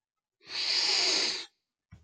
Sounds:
Sniff